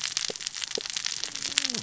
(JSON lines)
{"label": "biophony, cascading saw", "recorder": "SoundTrap 600 or HydroMoth"}